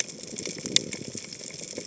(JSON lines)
{"label": "biophony", "recorder": "HydroMoth"}